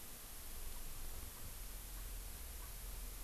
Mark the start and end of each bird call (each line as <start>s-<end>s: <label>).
1.3s-1.4s: Erckel's Francolin (Pternistis erckelii)
1.9s-2.0s: Erckel's Francolin (Pternistis erckelii)
2.6s-2.7s: Erckel's Francolin (Pternistis erckelii)